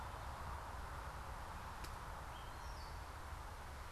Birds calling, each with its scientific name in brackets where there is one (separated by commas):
Gray Catbird (Dumetella carolinensis)